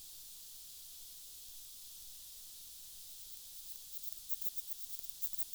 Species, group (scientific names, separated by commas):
Odontura stenoxypha, Orthoptera